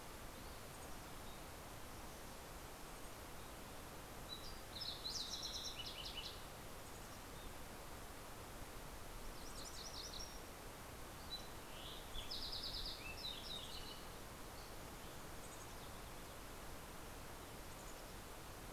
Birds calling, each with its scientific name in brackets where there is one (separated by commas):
MacGillivray's Warbler (Geothlypis tolmiei), Lazuli Bunting (Passerina amoena), Fox Sparrow (Passerella iliaca), Mountain Chickadee (Poecile gambeli)